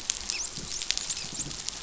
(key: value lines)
label: biophony, dolphin
recorder: SoundTrap 500